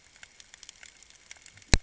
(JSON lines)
{"label": "ambient", "recorder": "HydroMoth"}